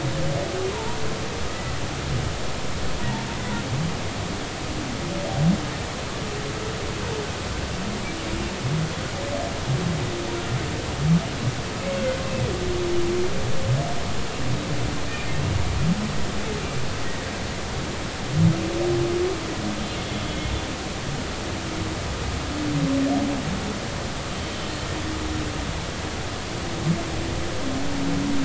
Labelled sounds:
0.7	1.0	humpback whale, 0.83 to 1.1 kHz
20.0	20.5	humpback whale, 3.3 to 3.4 kHz

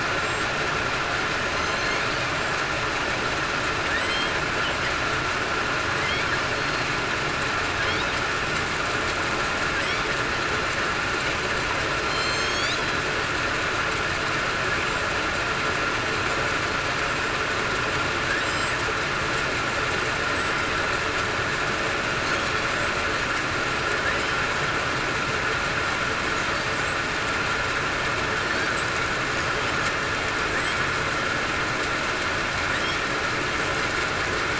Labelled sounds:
1.5	2.0	killer whale, southern resident, 4.1 to 4.4 kHz
4.0	4.3	killer whale, southern resident, 2.9 to 3.3 kHz
5.9	6.4	killer whale, southern resident, 7.8 to 8.0 kHz
12.0	12.7	killer whale, southern resident, 4.1 to 7.5 kHz
20.3	20.7	killer whale, southern resident, 7.7 to 8.0 kHz
24.0	24.4	killer whale, southern resident, 7.9 to 8.0 kHz

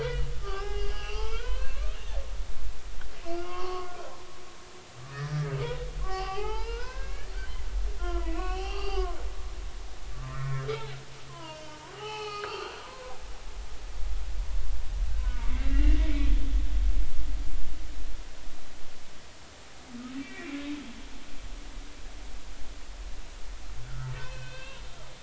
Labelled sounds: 0.0	2.2	humpback whale, 0.80 to 5.0 kHz
3.2	4.1	humpback whale, 0.96 to 3.3 kHz
5.0	5.5	humpback whale, 1.1 to 2.0 kHz
6.0	7.6	humpback whale, 0.80 to 5.2 kHz
8.0	9.2	humpback whale, 0.80 to 4.9 kHz
10.3	13.2	humpback whale, 0.80 to 5.5 kHz
15.1	16.3	humpback whale, 1.3 to 2.9 kHz
20.2	20.6	humpback whale, 2.2 to 2.5 kHz
23.8	24.8	humpback whale, 0.86 to 3.3 kHz

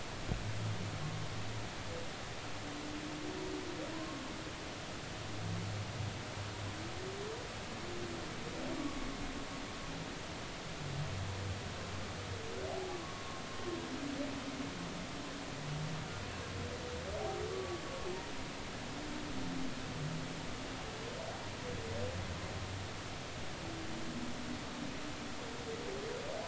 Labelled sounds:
3.9	4.2	humpback whale, 0.96 to 1.2 kHz
8.8	9.1	humpback whale, 1.1 to 1.2 kHz
12.7	13.3	humpback whale, 0.80 to 1.2 kHz
17.5	17.8	humpback whale, 1.1 to 1.2 kHz

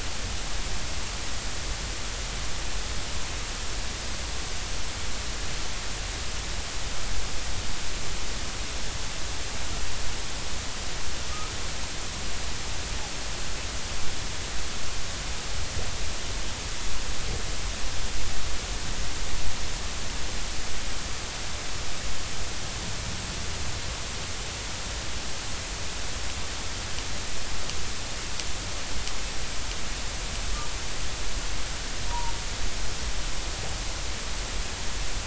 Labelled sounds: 11.3	11.5	humpback whale, 1.2 to 1.3 kHz
32.1	32.3	humpback whale, 0.86 to 1.2 kHz

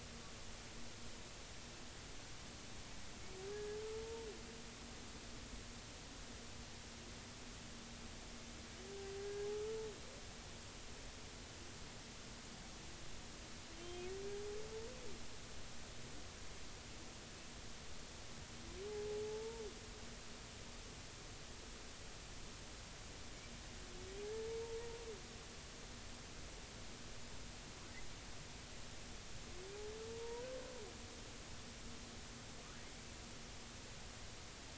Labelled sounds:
3.5	3.8	humpback whale, 1.6 to 1.8 kHz
9.2	9.5	humpback whale, 1.6 to 1.7 kHz
13.8	14.0	humpback whale, 3.0 to 3.2 kHz
19.2	19.6	humpback whale, 0.83 to 0.96 kHz
30.1	30.5	humpback whale, 0.90 to 1.0 kHz

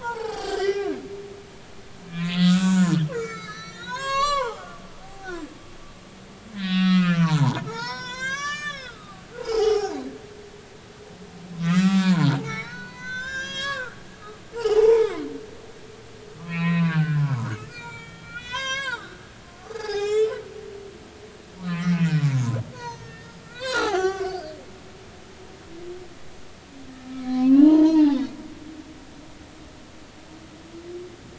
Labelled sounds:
0.0	0.9	humpback whale, 0.80 to 4.9 kHz
2.1	5.3	humpback whale, 0.80 to 7.7 kHz
6.5	10.0	humpback whale, 0.80 to 7.8 kHz
11.6	15.2	humpback whale, 0.80 to 7.3 kHz
16.4	20.4	humpback whale, 0.80 to 8.0 kHz
21.7	24.5	humpback whale, 0.80 to 7.1 kHz
27.2	28.3	humpback whale, 0.80 to 4.3 kHz

